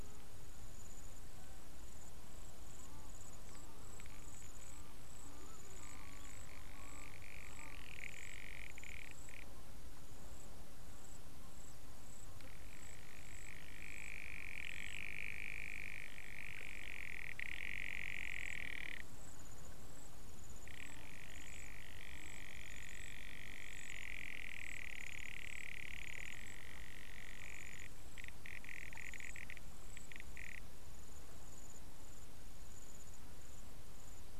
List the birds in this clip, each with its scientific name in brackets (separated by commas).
Garganey (Spatula querquedula)